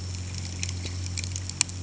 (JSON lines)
{"label": "anthrophony, boat engine", "recorder": "HydroMoth"}